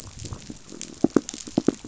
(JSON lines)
{"label": "biophony, knock", "recorder": "SoundTrap 500"}